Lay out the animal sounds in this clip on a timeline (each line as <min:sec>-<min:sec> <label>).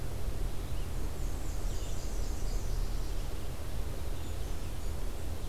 0:00.8-0:02.4 Black-and-white Warbler (Mniotilta varia)
0:01.3-0:03.2 Nashville Warbler (Leiothlypis ruficapilla)
0:04.2-0:05.0 Brown Creeper (Certhia americana)